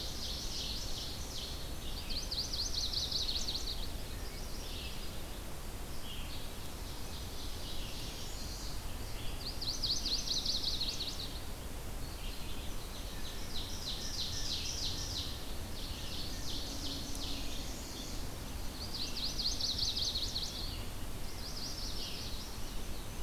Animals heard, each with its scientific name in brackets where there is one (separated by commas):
Chestnut-sided Warbler (Setophaga pensylvanica), Red-eyed Vireo (Vireo olivaceus), Blue Jay (Cyanocitta cristata), Northern Parula (Setophaga americana), Wood Thrush (Hylocichla mustelina), Ovenbird (Seiurus aurocapilla)